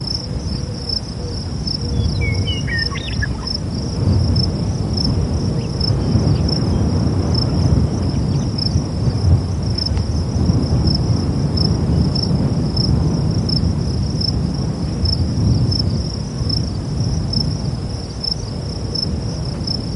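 A cricket chirps rhythmically and repetitively. 0:00.0 - 0:20.0
An airplane flies overhead, producing a steady, fading drone. 0:00.0 - 0:20.0
A Eurasian Collared Dove calls rhythmically with soft, repeating coos. 0:00.2 - 0:06.6
A bird sings irregularly with varying pitch and intervals. 0:01.9 - 0:04.0
Small birds produce brief, irregular clicking and chattering sounds. 0:05.5 - 0:10.4

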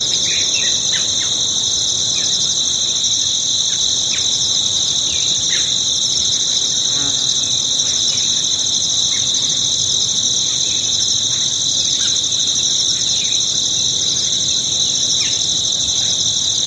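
A bird chirps irregularly in the distance. 0:00.0 - 0:06.6
Crickets chirping constantly in a field. 0:00.0 - 0:16.7
An insect buzzing while flying by. 0:06.6 - 0:08.3
A bird chirps irregularly in the distance. 0:08.9 - 0:10.3
A bird chirps irregularly in the distance. 0:10.9 - 0:16.7

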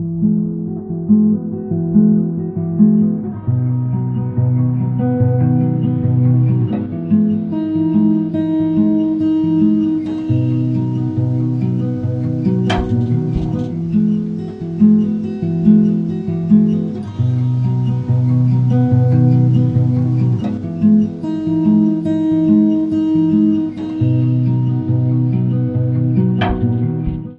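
A guitar is playing. 0:00.0 - 0:27.3

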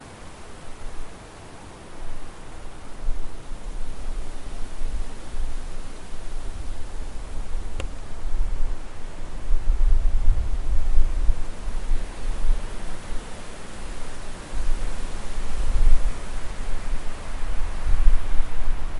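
Strong wind blows continuously through trees, creating a blend of whooshing, rustling, and swaying sounds. 0:00.0 - 0:19.0

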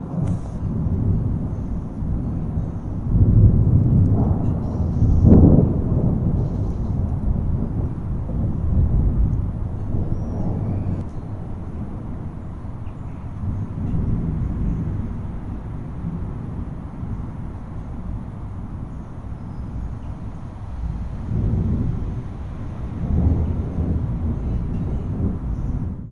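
Wind blowing. 0:00.0 - 0:26.1
Thunder sounds. 0:02.8 - 0:07.2
Thunder rumbles. 0:21.0 - 0:26.1

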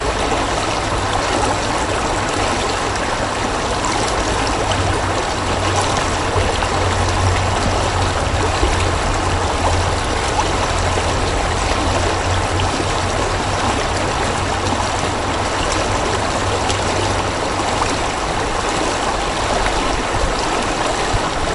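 Water bubbling as it flows down a river. 0:00.1 - 0:21.5

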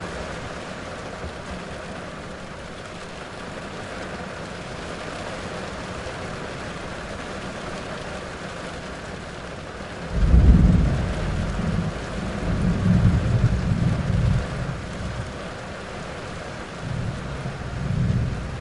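Rain falling steadily and softly on a car roof and windows. 0:00.0 - 0:18.6
Thunder rumbles deeply and echoes during a storm. 0:10.1 - 0:15.4
Thunder cracks deeply and echoes briefly during a storm. 0:16.8 - 0:18.6

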